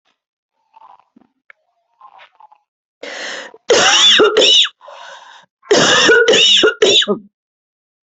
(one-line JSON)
{"expert_labels": [{"quality": "good", "cough_type": "wet", "dyspnea": false, "wheezing": false, "stridor": false, "choking": false, "congestion": false, "nothing": true, "diagnosis": "lower respiratory tract infection", "severity": "severe"}], "age": 44, "gender": "female", "respiratory_condition": false, "fever_muscle_pain": false, "status": "symptomatic"}